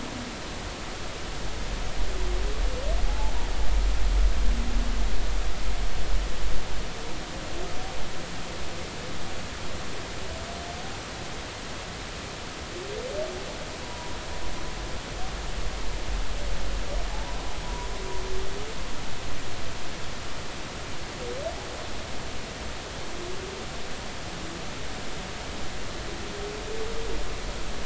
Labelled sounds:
3.1	3.3	humpback whale, 0.80 to 0.93 kHz
13.8	14.2	humpback whale, 0.93 to 1.0 kHz
17.1	17.9	humpback whale, 0.80 to 1.1 kHz

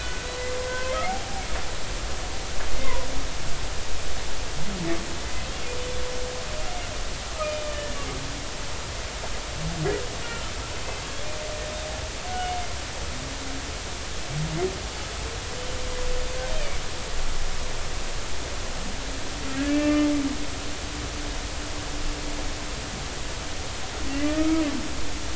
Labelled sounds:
0.0	0.3	humpback whale, 1.4 to 1.6 kHz
0.7	1.4	humpback whale, 0.80 to 3.4 kHz
2.7	3.1	humpback whale, 0.93 to 2.2 kHz
7.6	8.0	humpback whale, 1.7 to 1.8 kHz
10.2	10.5	humpback whale, 1.3 to 1.5 kHz
19.6	20.1	humpback whale, 1.2 to 2.7 kHz
24.1	24.6	humpback whale, 1.2 to 2.1 kHz

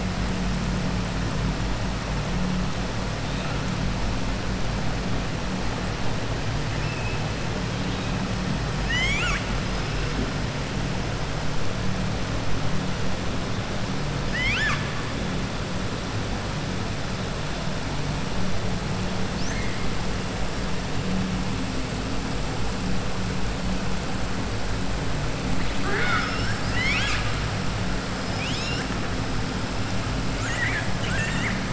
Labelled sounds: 8.7	9.5	killer whale, southern resident, 1.2 to 7.9 kHz
14.2	14.9	killer whale, southern resident, 1.2 to 7.3 kHz
19.4	19.8	killer whale, southern resident, 1.7 to 2.2 kHz
25.7	27.3	killer whale, southern resident, 0.61 to 7.3 kHz
30.3	31.6	killer whale, southern resident, 1.3 to 3.8 kHz

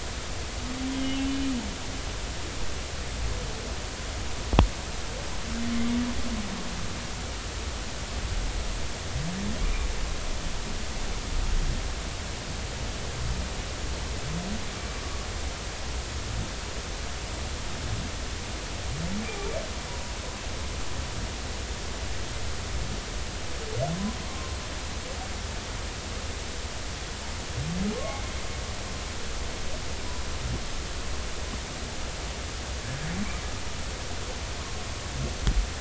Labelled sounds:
0.9	1.2	humpback whale, 2.9 to 3.2 kHz
9.6	9.9	humpback whale, 2.2 to 2.5 kHz
19.9	20.1	humpback whale, 0.93 to 1.0 kHz
24.2	24.5	humpback whale, 0.99 to 1.2 kHz
27.9	28.2	humpback whale, 1.0 to 1.2 kHz

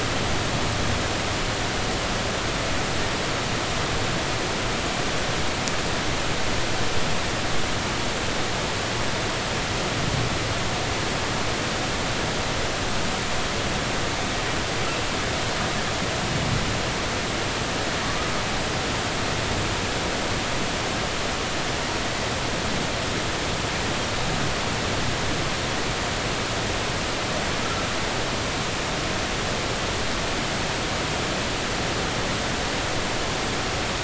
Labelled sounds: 18.0	18.3	humpback whale, 1.1 to 1.3 kHz

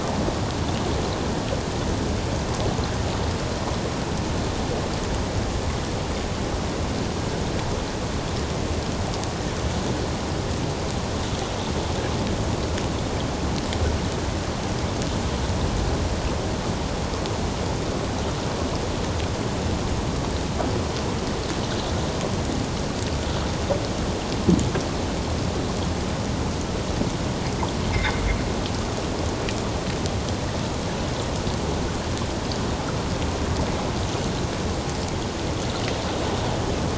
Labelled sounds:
27.9	28.2	sound of anthropogenic origin, 1.9 to 2.3 kHz

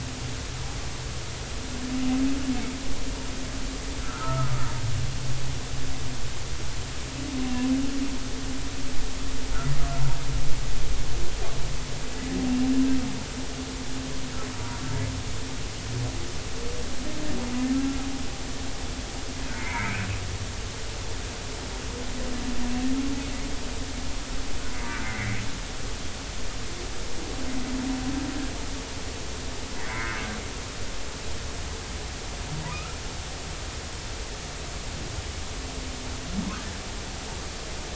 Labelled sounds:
4.0	4.6	humpback whale, 1.2 to 1.6 kHz
19.6	20.1	humpback whale, 1.9 to 2.6 kHz
25.0	25.4	humpback whale, 1.8 to 2.4 kHz
29.8	30.1	humpback whale, 1.8 to 2.3 kHz
32.7	33.0	humpback whale, 1.2 to 1.4 kHz

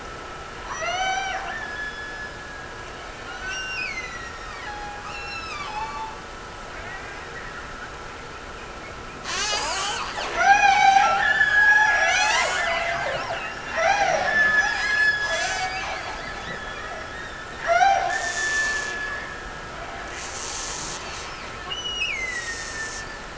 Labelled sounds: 0.7	2.8	killer whale, Bigg's (transient), Gulf of Alaska transient, 0.48 to 6.0 kHz
3.2	6.2	killer whale, Bigg's (transient), Gulf of Alaska transient, 0.67 to 6.0 kHz
10.3	13.2	killer whale, Bigg's (transient), Gulf of Alaska transient, 0.34 to 6.8 kHz
13.7	17.1	killer whale, Bigg's (transient), Gulf of Alaska transient, 0.46 to 6.2 kHz
17.6	19.3	killer whale, Bigg's (transient), Gulf of Alaska transient, 0.44 to 6.3 kHz
21.7	23.3	killer whale, Bigg's (transient), Gulf of Alaska transient, 1.6 to 8.0 kHz

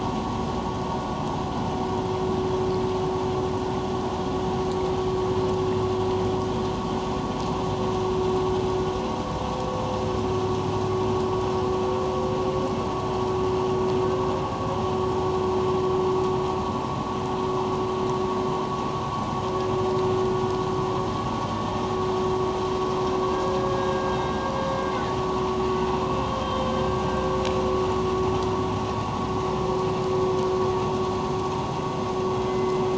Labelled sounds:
23.3	24.2	humpback whale, 1.6 to 3.8 kHz
26.4	27.0	humpback whale, 1.5 to 3.7 kHz
32.5	32.8	humpback whale, 2.0 to 2.1 kHz

